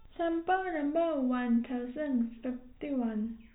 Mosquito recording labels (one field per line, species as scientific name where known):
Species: no mosquito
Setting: cup